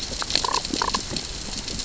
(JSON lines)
{"label": "biophony, damselfish", "recorder": "SoundTrap 600 or HydroMoth"}